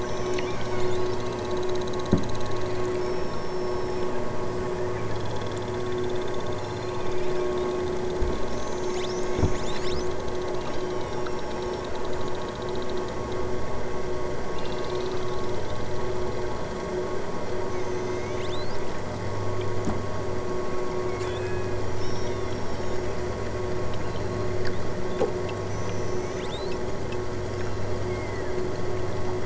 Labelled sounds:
0.0	1.4	killer whale, southern Alaska resident, 2.4 to 8.0 kHz
3.0	4.3	killer whale, southern Alaska resident, 2.7 to 5.7 kHz
6.5	7.6	killer whale, southern Alaska resident, 2.4 to 8.0 kHz
8.4	10.1	killer whale, southern Alaska resident, 2.0 to 8.0 kHz
10.6	11.9	killer whale, southern Alaska resident, 2.1 to 5.9 kHz
14.5	15.5	killer whale, southern Alaska resident, 1.9 to 6.7 kHz
17.7	18.9	killer whale, southern Alaska resident, 2.3 to 8.0 kHz
21.1	23.4	killer whale, southern Alaska resident, 2.1 to 8.0 kHz
24.0	24.8	killer whale, southern Alaska resident, 3.6 to 7.2 kHz
25.6	26.9	killer whale, southern Alaska resident, 2.2 to 8.0 kHz
27.6	28.6	killer whale, southern Alaska resident, 2.2 to 8.0 kHz

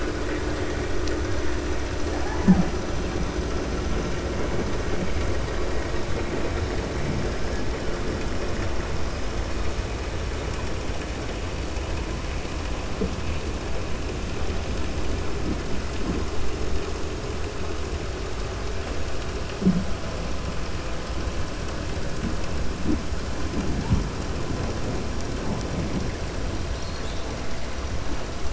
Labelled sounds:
26.7	27.3	killer whale, 3.4 to 5.8 kHz

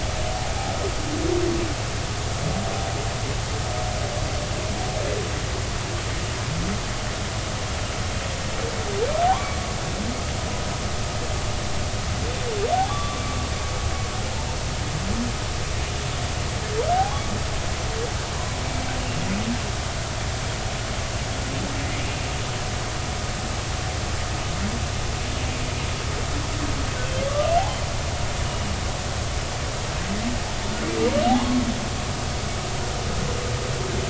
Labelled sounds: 9.3	9.6	humpback whale, 0.80 to 1.2 kHz
12.7	13.4	humpback whale, 0.80 to 1.2 kHz
16.9	17.2	humpback whale, 0.80 to 1.2 kHz
28.3	28.5	humpback whale, 1.1 to 1.3 kHz
31.4	31.6	humpback whale, 0.99 to 1.1 kHz

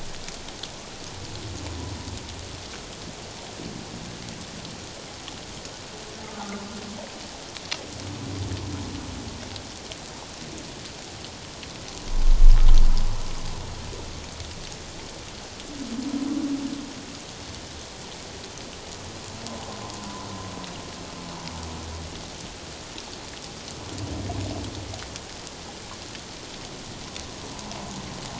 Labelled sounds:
6.3	6.6	humpback whale, 1.2 to 1.3 kHz

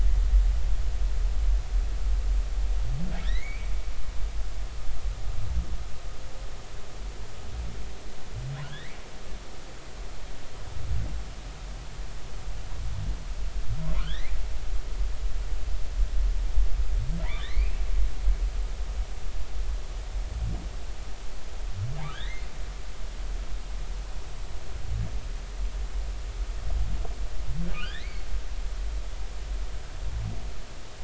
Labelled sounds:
3.3	3.7	humpback whale, 1.7 to 2.6 kHz
8.7	9.0	humpback whale, 1.6 to 2.4 kHz
14.0	14.3	humpback whale, 1.2 to 4.2 kHz
17.3	17.8	humpback whale, 1.5 to 4.2 kHz
22.1	22.5	humpback whale, 1.4 to 4.0 kHz
27.7	28.3	humpback whale, 1.4 to 4.1 kHz

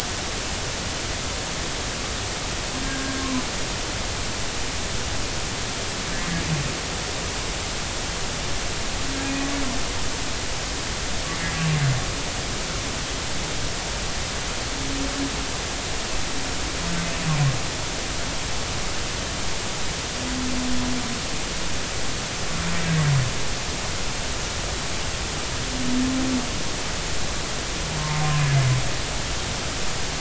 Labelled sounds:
2.8	3.1	humpback whale, 1.5 to 1.7 kHz
11.4	11.7	humpback whale, 1.6 to 1.7 kHz

